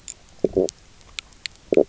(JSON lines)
{"label": "biophony, stridulation", "recorder": "SoundTrap 300"}